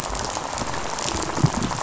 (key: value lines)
label: biophony, rattle
recorder: SoundTrap 500